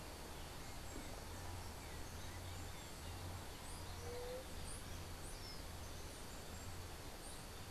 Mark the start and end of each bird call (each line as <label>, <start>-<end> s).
White-tipped Dove (Leptotila verreauxi), 3.9-4.5 s